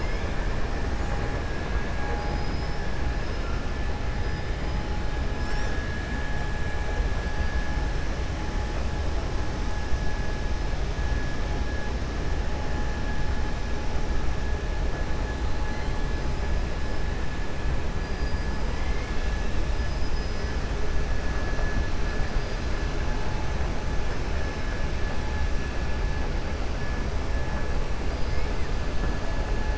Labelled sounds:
19.8	20.5	killer whale, 4.1 to 6.0 kHz

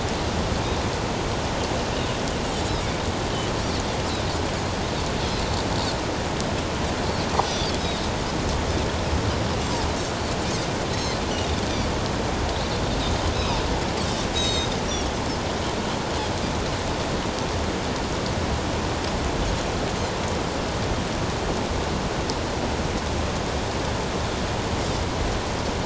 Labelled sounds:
10.9	11.2	Pacific white-sided dolphin, 3.9 to 4.4 kHz
13.3	13.6	Pacific white-sided dolphin, 3.5 to 4.0 kHz
14.3	14.8	Pacific white-sided dolphin, 3.7 to 7.7 kHz

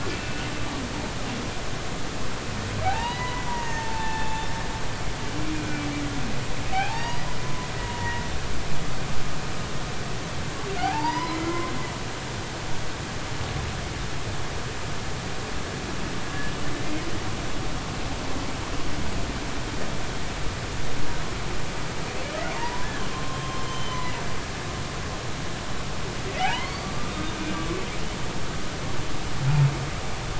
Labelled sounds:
0.1	0.5	humpback whale, 2.6 to 3.0 kHz
2.8	4.4	humpback whale, 0.80 to 6.6 kHz
5.5	5.9	humpback whale, 2.3 to 2.5 kHz
6.7	8.2	humpback whale, 0.80 to 5.0 kHz
10.8	11.8	humpback whale, 0.80 to 5.2 kHz
22.5	24.0	humpback whale, 0.80 to 3.2 kHz
26.4	26.9	humpback whale, 0.80 to 4.7 kHz

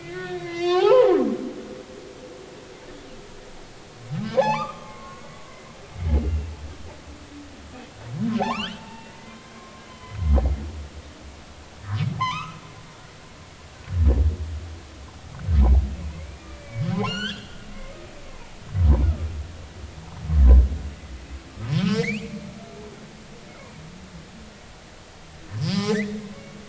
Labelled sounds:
0.0	1.1	humpback whale, 0.80 to 5.5 kHz
4.1	5.3	humpback whale, 0.80 to 3.7 kHz
6.2	6.5	humpback whale, 2.7 to 2.8 kHz
8.4	10.2	humpback whale, 0.80 to 3.6 kHz
12.2	12.6	humpback whale, 0.80 to 6.5 kHz
16.1	18.0	humpback whale, 1.3 to 7.5 kHz
18.3	18.6	humpback whale, 0.80 to 1.1 kHz
21.8	22.4	humpback whale, 1.2 to 3.1 kHz
25.6	26.2	humpback whale, 0.80 to 5.2 kHz

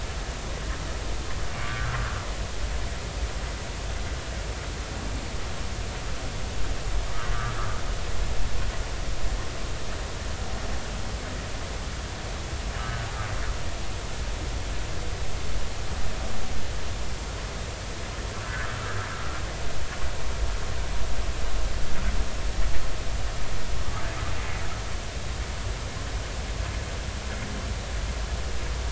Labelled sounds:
1.6	1.9	humpback whale, 1.1 to 1.7 kHz
12.8	13.1	humpback whale, 1.4 to 1.7 kHz

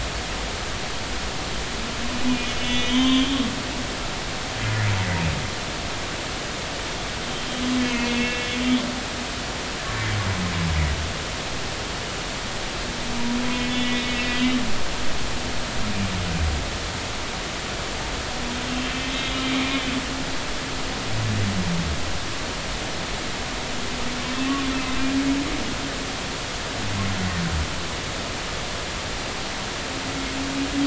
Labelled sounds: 2.3	3.5	humpback whale, 0.96 to 3.7 kHz
7.3	8.5	humpback whale, 2.1 to 3.3 kHz
13.7	14.0	humpback whale, 2.9 to 3.0 kHz
24.5	25.0	humpback whale, 1.0 to 2.7 kHz

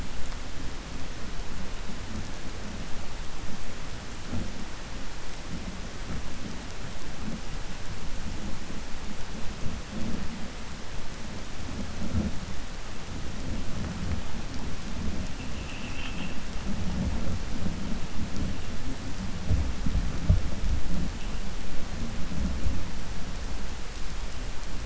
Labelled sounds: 15.4	16.4	vessel noise, 1.3 to 3.4 kHz

